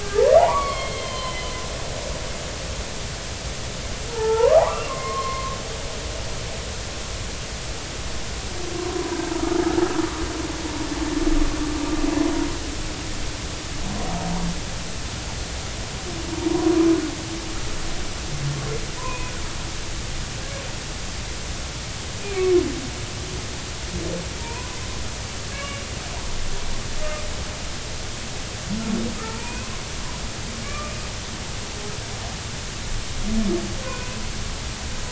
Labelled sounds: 0.0	1.5	humpback whale, 0.80 to 3.3 kHz
4.1	5.6	humpback whale, 0.80 to 2.8 kHz
8.8	9.2	humpback whale, 0.90 to 1.1 kHz
19.0	19.3	humpback whale, 0.93 to 2.6 kHz
22.2	22.5	humpback whale, 2.2 to 2.5 kHz
24.4	25.8	humpback whale, 0.86 to 2.9 kHz
29.2	29.7	humpback whale, 0.83 to 2.7 kHz
30.7	30.9	humpback whale, 1.1 to 1.2 kHz
33.8	34.2	humpback whale, 0.96 to 2.5 kHz

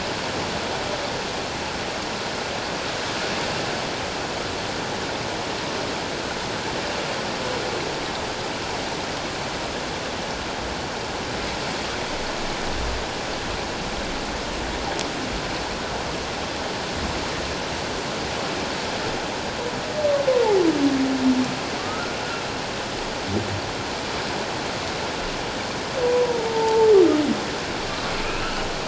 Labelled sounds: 21.8	22.1	humpback whale, 1.1 to 1.5 kHz
26.0	26.9	humpback whale, 0.81 to 1.0 kHz
28.1	28.7	humpback whale, 2.4 to 3.1 kHz

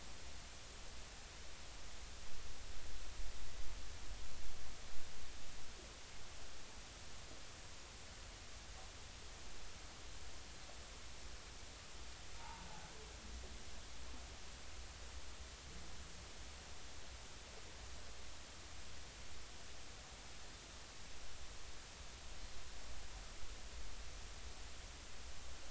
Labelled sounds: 12.3	12.7	humpback whale, 0.80 to 0.99 kHz

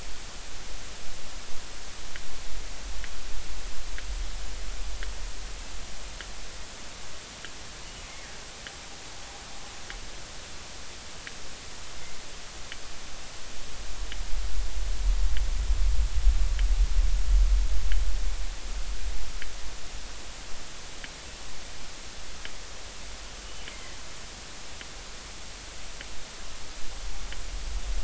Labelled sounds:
23.7	24.0	killer whale, northern resident, G clan, GG subclan, call N23ii, 2.0 to 2.2 kHz

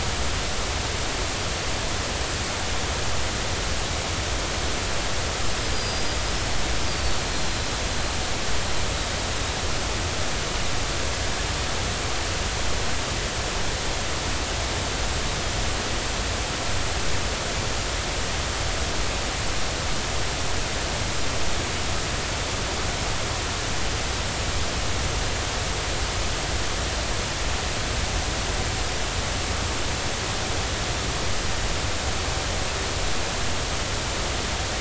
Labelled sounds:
5.7	6.0	small unidentified odontocete, 4.8 to 5.0 kHz
7.5	7.7	small unidentified odontocete, 4.0 to 4.2 kHz

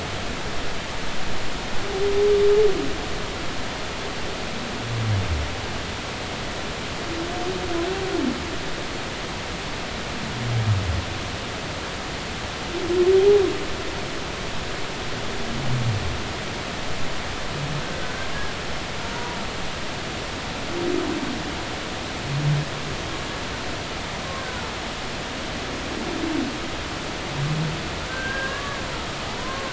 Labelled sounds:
13.2	13.4	humpback whale, 0.80 to 0.86 kHz
17.9	18.2	humpback whale, 1.4 to 1.6 kHz
19.0	19.4	humpback whale, 0.90 to 1.0 kHz
24.4	24.6	humpback whale, 1.4 to 1.6 kHz
28.1	29.7	humpback whale, 0.96 to 1.7 kHz

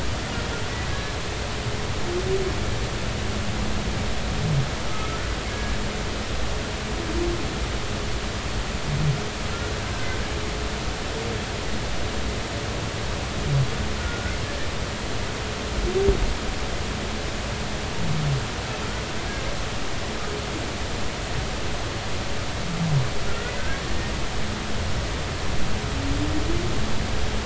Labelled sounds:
0.9	1.1	humpback whale, 1.6 to 1.8 kHz
4.9	5.8	humpback whale, 1.2 to 1.8 kHz
9.5	10.2	humpback whale, 1.3 to 1.6 kHz
14.0	14.4	humpback whale, 1.4 to 1.5 kHz
23.3	23.8	humpback whale, 1.5 to 2.0 kHz

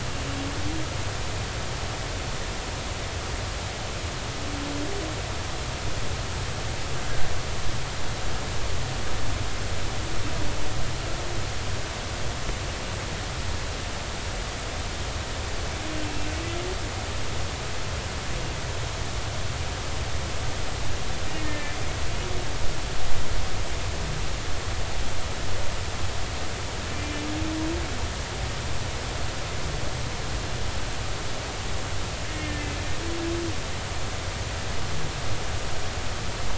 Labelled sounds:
21.4	21.8	humpback whale, 1.7 to 2.1 kHz
32.5	32.7	humpback whale, 1.7 to 1.9 kHz

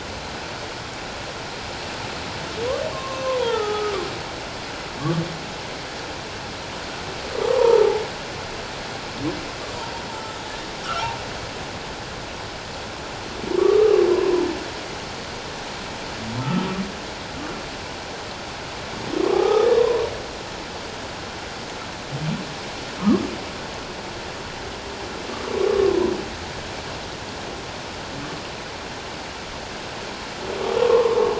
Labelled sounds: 2.9	4.0	humpback whale, 0.84 to 1.4 kHz
7.4	8.0	humpback whale, 0.78 to 1.2 kHz
13.6	14.4	humpback whale, 0.94 to 1.3 kHz
16.4	16.7	humpback whale, 1.2 to 1.4 kHz
19.2	20.1	humpback whale, 0.78 to 1.3 kHz
23.0	23.3	humpback whale, 0.94 to 1.3 kHz
25.7	26.0	humpback whale, 1.0 to 1.2 kHz
30.8	31.2	humpback whale, 0.84 to 1.2 kHz

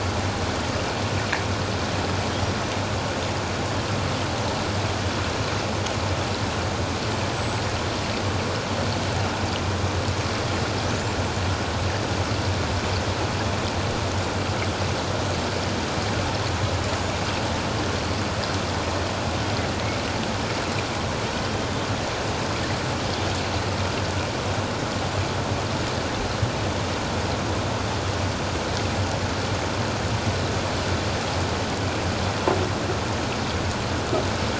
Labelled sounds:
21.4	21.7	killer whale, Bigg's (transient), 3.0 to 3.2 kHz

